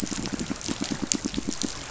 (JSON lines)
{"label": "biophony, pulse", "recorder": "SoundTrap 500"}